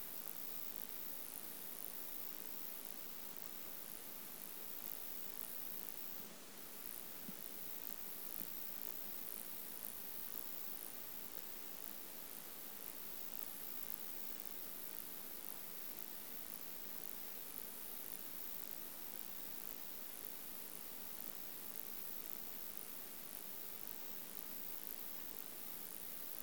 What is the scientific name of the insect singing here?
Metrioptera prenjica